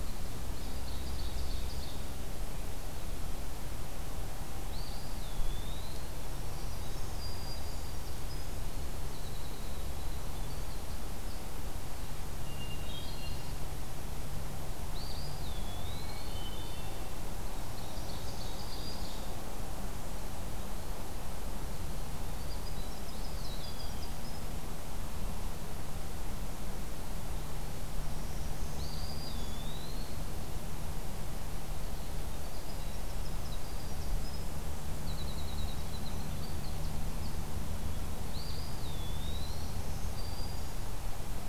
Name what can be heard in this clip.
Ovenbird, Eastern Wood-Pewee, Black-throated Green Warbler, Winter Wren, Hermit Thrush